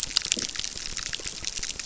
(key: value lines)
label: biophony, crackle
recorder: SoundTrap 600